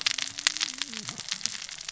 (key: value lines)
label: biophony, cascading saw
recorder: SoundTrap 600 or HydroMoth